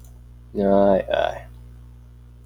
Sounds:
Sigh